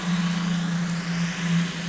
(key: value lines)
label: anthrophony, boat engine
recorder: SoundTrap 500